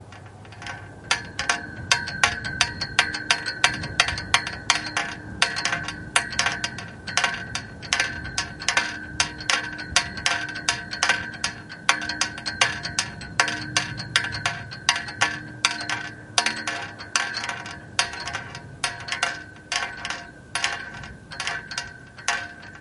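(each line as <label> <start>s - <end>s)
Metallic thumping sounds repeating almost rhythmically. 1.0s - 22.7s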